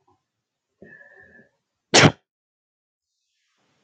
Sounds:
Sneeze